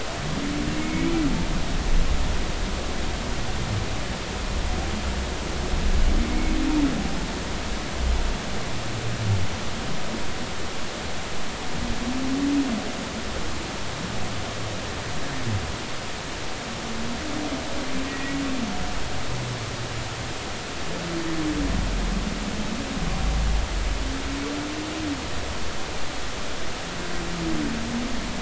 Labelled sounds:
0.8	1.1	humpback whale, 2.1 to 2.4 kHz
18.1	18.4	humpback whale, 1.9 to 2.0 kHz

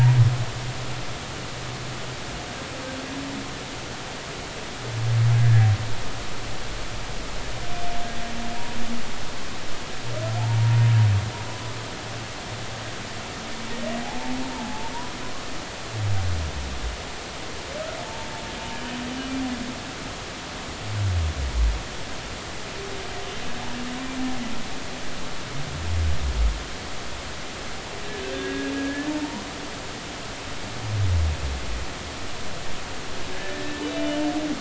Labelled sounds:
0.8	1.2	humpback whale, 0.83 to 0.99 kHz
5.3	5.7	humpback whale, 1.6 to 1.8 kHz
14.5	14.9	humpback whale, 0.80 to 1.1 kHz
28.3	29.4	humpback whale, 0.83 to 1.8 kHz
33.4	34.2	humpback whale, 1.6 to 3.0 kHz

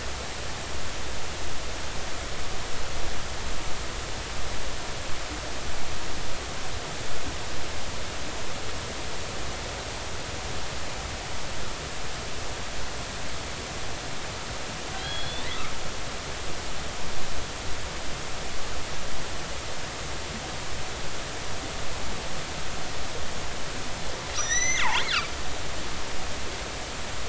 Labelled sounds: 15.0	15.5	killer whale, northern resident, G clan, call N40, 3.1 to 4.4 kHz
24.4	25.0	killer whale, northern resident, G clan, GG subclan, call N29, 1.8 to 6.1 kHz
26.0	26.3	killer whale, northern resident, G clan, GG subclan, call N29, 1.1 to 2.3 kHz

